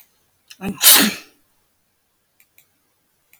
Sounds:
Sneeze